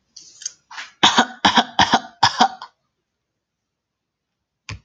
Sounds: Cough